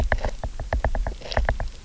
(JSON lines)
{"label": "biophony, knock", "recorder": "SoundTrap 300"}